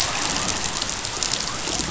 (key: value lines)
label: biophony
recorder: SoundTrap 500